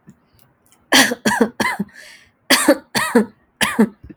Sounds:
Cough